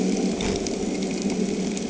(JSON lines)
{"label": "anthrophony, boat engine", "recorder": "HydroMoth"}